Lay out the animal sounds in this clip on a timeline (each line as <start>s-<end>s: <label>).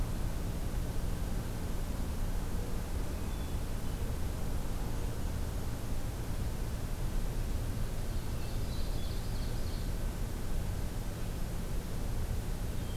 8.1s-10.0s: Ovenbird (Seiurus aurocapilla)